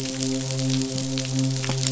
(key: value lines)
label: biophony, midshipman
recorder: SoundTrap 500